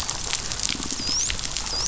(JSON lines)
{"label": "biophony, dolphin", "recorder": "SoundTrap 500"}
{"label": "biophony", "recorder": "SoundTrap 500"}